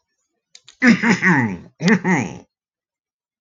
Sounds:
Throat clearing